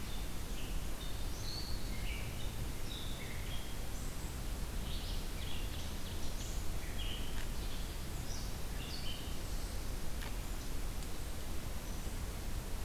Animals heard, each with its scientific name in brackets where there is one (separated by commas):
Red-eyed Vireo (Vireo olivaceus), Wood Thrush (Hylocichla mustelina)